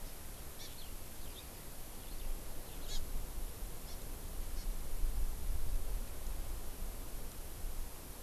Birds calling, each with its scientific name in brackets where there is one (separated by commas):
Eurasian Skylark (Alauda arvensis), Hawaii Amakihi (Chlorodrepanis virens)